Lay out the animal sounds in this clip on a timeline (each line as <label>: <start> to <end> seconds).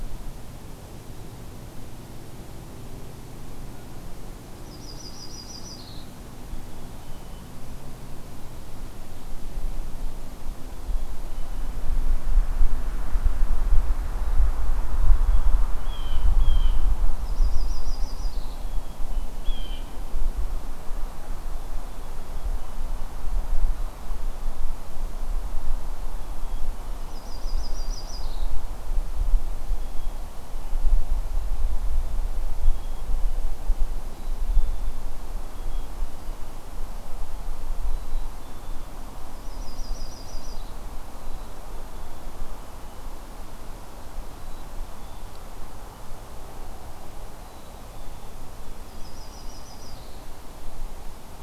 Yellow-rumped Warbler (Setophaga coronata): 4.5 to 6.1 seconds
Black-capped Chickadee (Poecile atricapillus): 6.5 to 7.6 seconds
Black-capped Chickadee (Poecile atricapillus): 10.7 to 11.9 seconds
Blue Jay (Cyanocitta cristata): 15.7 to 16.8 seconds
Yellow-rumped Warbler (Setophaga coronata): 17.2 to 18.6 seconds
Blue Jay (Cyanocitta cristata): 18.9 to 20.0 seconds
Black-capped Chickadee (Poecile atricapillus): 26.1 to 27.3 seconds
Yellow-rumped Warbler (Setophaga coronata): 27.0 to 28.6 seconds
Black-capped Chickadee (Poecile atricapillus): 29.8 to 30.9 seconds
Black-capped Chickadee (Poecile atricapillus): 32.5 to 33.6 seconds
Black-capped Chickadee (Poecile atricapillus): 34.0 to 35.0 seconds
Black-capped Chickadee (Poecile atricapillus): 37.8 to 39.0 seconds
Yellow-rumped Warbler (Setophaga coronata): 39.3 to 40.8 seconds
Black-capped Chickadee (Poecile atricapillus): 44.2 to 45.4 seconds
Black-capped Chickadee (Poecile atricapillus): 47.4 to 48.5 seconds
Yellow-rumped Warbler (Setophaga coronata): 48.8 to 50.3 seconds